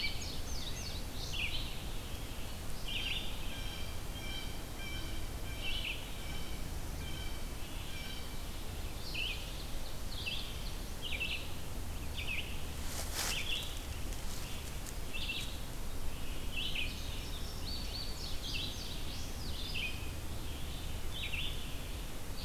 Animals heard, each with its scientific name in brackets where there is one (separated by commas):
Indigo Bunting (Passerina cyanea), Red-eyed Vireo (Vireo olivaceus), Blue Jay (Cyanocitta cristata), Ovenbird (Seiurus aurocapilla)